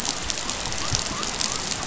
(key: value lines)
label: biophony
recorder: SoundTrap 500